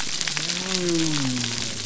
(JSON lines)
{"label": "biophony", "recorder": "SoundTrap 300"}